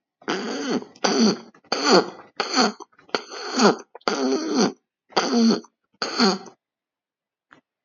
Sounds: Throat clearing